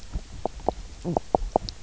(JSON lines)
{"label": "biophony, knock croak", "recorder": "SoundTrap 300"}